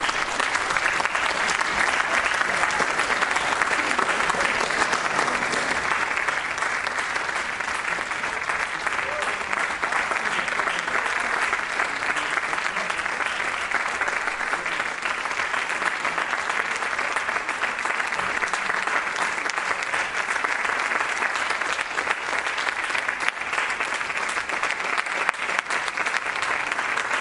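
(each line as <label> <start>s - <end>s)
The crowd claps rhythmically and continuously. 0.0s - 27.2s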